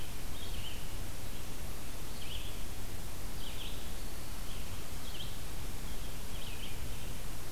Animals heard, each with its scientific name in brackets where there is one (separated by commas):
Red-eyed Vireo (Vireo olivaceus)